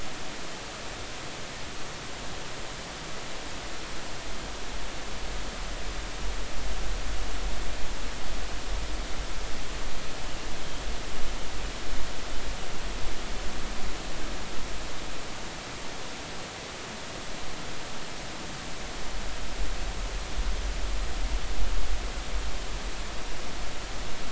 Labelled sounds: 10.2	10.5	humpback whale, 2.7 to 3.1 kHz

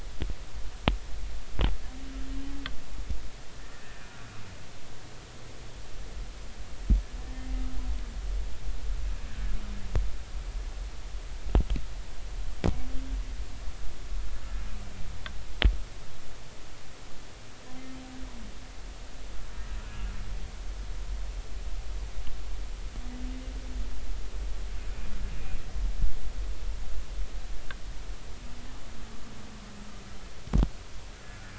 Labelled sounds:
3.7	4.0	humpback whale, 1.7 to 1.9 kHz
7.2	7.5	humpback whale, 1.8 to 1.9 kHz

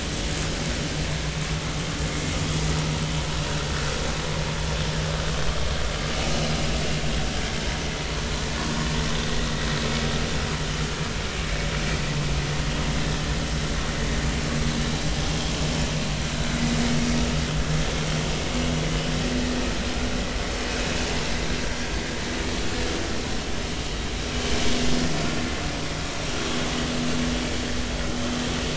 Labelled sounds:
21.8	22.1	vessel noise, 4.4 to 4.7 kHz

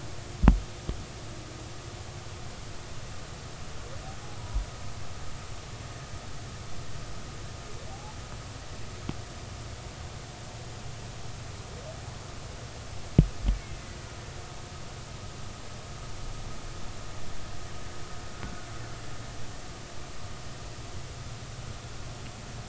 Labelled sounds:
4.4	4.7	killer whale, Bigg's (transient), 0.90 to 1.0 kHz
7.9	8.1	killer whale, Bigg's (transient), 0.80 to 0.93 kHz
13.5	13.8	killer whale, Bigg's (transient), 2.0 to 2.4 kHz
18.4	18.7	killer whale, Bigg's (transient), 1.4 to 1.5 kHz

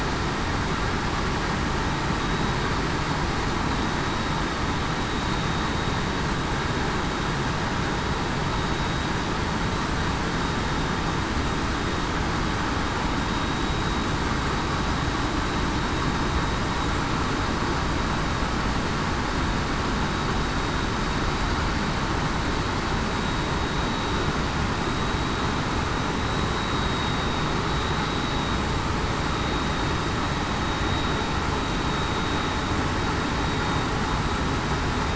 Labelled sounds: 4.0	4.3	vessel noise, 3.80 to 3.84 kHz
5.2	5.6	vessel noise, 3.7 to 3.8 kHz
8.7	9.1	vessel noise, 3.80 to 3.84 kHz
24.8	25.3	vessel noise, 3.80 to 3.84 kHz
26.7	27.5	vessel noise, 3.7 to 3.8 kHz

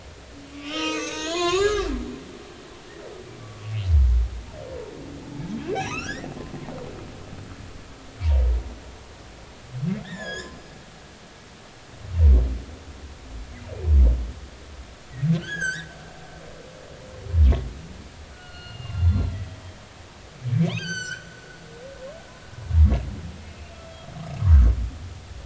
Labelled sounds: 0.5	2.5	humpback whale, 0.90 to 7.2 kHz
5.7	6.3	humpback whale, 1.1 to 6.6 kHz
10.0	10.6	humpback whale, 1.5 to 7.4 kHz
15.4	15.9	humpback whale, 1.4 to 6.8 kHz
18.3	19.6	humpback whale, 1.3 to 4.4 kHz
20.5	21.3	humpback whale, 1.4 to 7.7 kHz
23.5	23.8	humpback whale, 2.3 to 2.6 kHz

